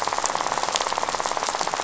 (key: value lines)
label: biophony, rattle
recorder: SoundTrap 500